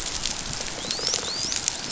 {"label": "biophony, dolphin", "recorder": "SoundTrap 500"}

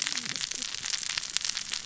{"label": "biophony, cascading saw", "recorder": "SoundTrap 600 or HydroMoth"}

